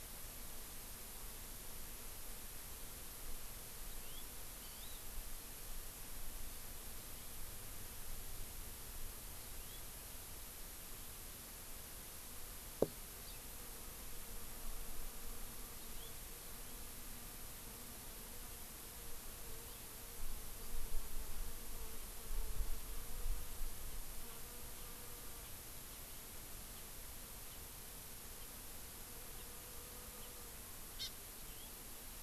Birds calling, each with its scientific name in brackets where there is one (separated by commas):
Hawaii Amakihi (Chlorodrepanis virens), House Finch (Haemorhous mexicanus)